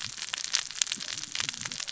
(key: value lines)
label: biophony, cascading saw
recorder: SoundTrap 600 or HydroMoth